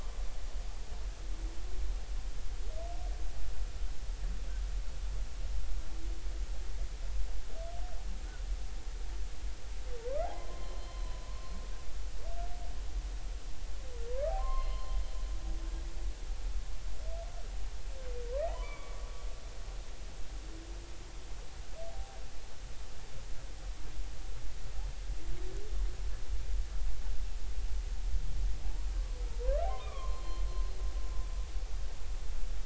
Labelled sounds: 10.3	11.5	humpback whale, 0.96 to 4.2 kHz
14.3	15.0	humpback whale, 0.80 to 4.3 kHz
18.5	19.0	humpback whale, 0.80 to 3.5 kHz
21.9	22.2	humpback whale, 0.80 to 0.90 kHz
28.6	30.4	humpback whale, 0.80 to 4.3 kHz

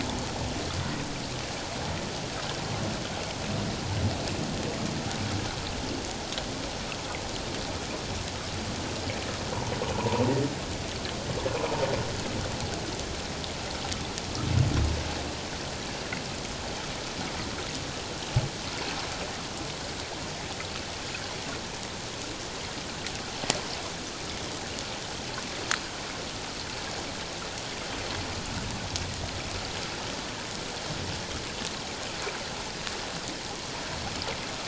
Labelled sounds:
9.9	10.2	humpback whale, 0.84 to 1.1 kHz

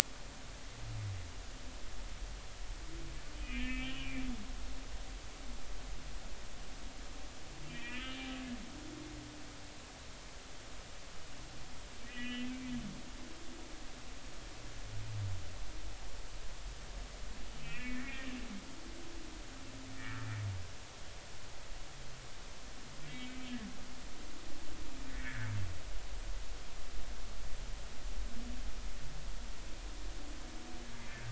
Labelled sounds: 3.4	4.2	humpback whale, 1.7 to 3.2 kHz
7.7	8.2	humpback whale, 1.2 to 3.0 kHz
12.0	12.5	humpback whale, 1.7 to 3.3 kHz
17.6	18.3	humpback whale, 1.7 to 2.8 kHz
23.1	23.4	humpback whale, 2.2 to 2.3 kHz
25.1	25.5	humpback whale, 1.4 to 2.0 kHz
31.0	31.2	humpback whale, 2.0 to 2.2 kHz

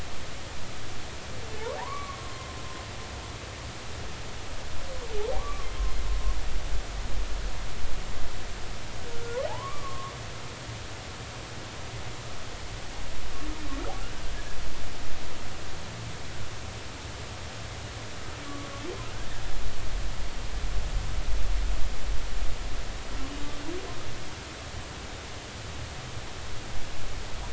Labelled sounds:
1.8	2.5	humpback whale, 0.80 to 2.3 kHz
5.4	5.7	humpback whale, 1.0 to 1.2 kHz
9.1	10.2	humpback whale, 0.80 to 1.5 kHz

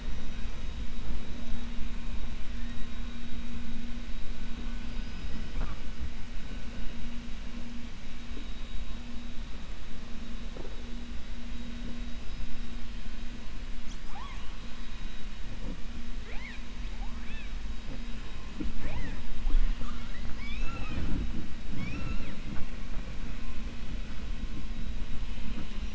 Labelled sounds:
14.0	14.5	killer whale, 0.75 to 3.4 kHz
21.7	22.4	killer whale, 0.10 to 6.3 kHz

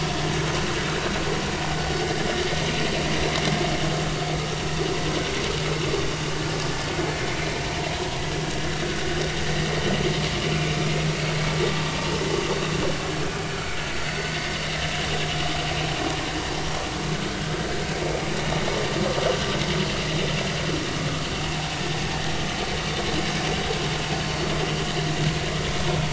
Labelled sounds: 7.3	7.6	vessel noise, 2.3 to 2.5 kHz

